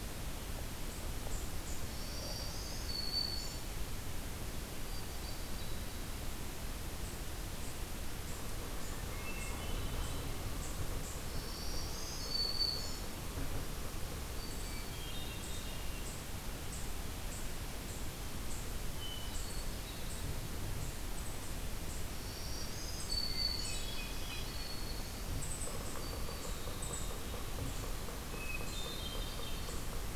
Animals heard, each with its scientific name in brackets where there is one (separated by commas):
Hermit Thrush (Catharus guttatus), Yellow-bellied Sapsucker (Sphyrapicus varius), Black-throated Green Warbler (Setophaga virens), Eastern Chipmunk (Tamias striatus), Winter Wren (Troglodytes hiemalis)